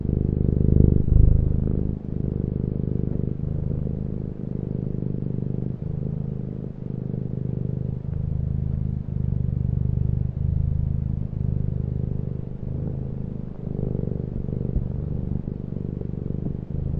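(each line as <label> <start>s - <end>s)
A cat is purring. 0.0s - 17.0s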